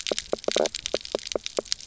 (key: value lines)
label: biophony, knock croak
recorder: SoundTrap 300